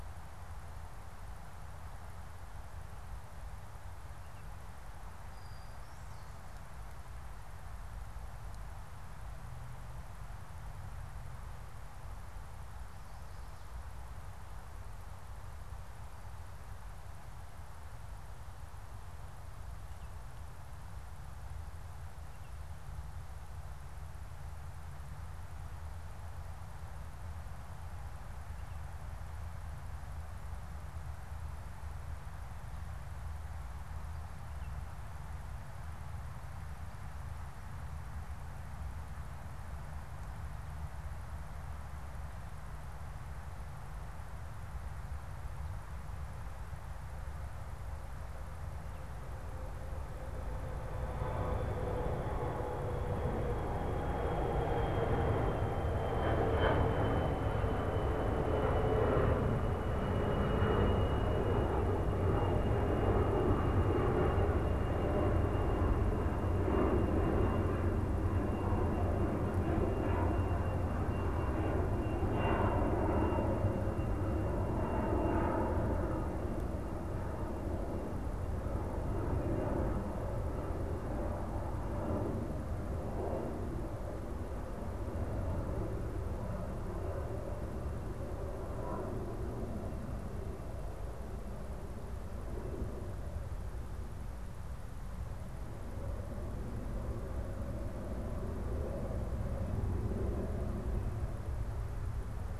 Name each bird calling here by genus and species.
Molothrus ater